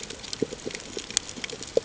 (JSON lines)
{"label": "ambient", "recorder": "HydroMoth"}